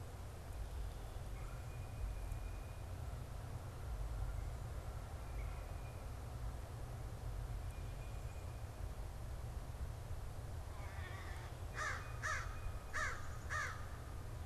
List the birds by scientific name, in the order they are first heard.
Baeolophus bicolor, Melanerpes carolinus, unidentified bird, Corvus brachyrhynchos